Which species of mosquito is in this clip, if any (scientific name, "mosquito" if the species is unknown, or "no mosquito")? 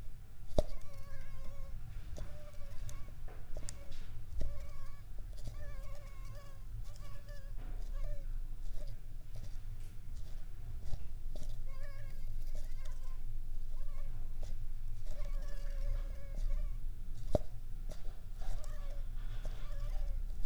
Anopheles arabiensis